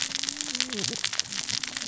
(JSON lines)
{"label": "biophony, cascading saw", "recorder": "SoundTrap 600 or HydroMoth"}